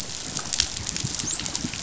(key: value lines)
label: biophony, dolphin
recorder: SoundTrap 500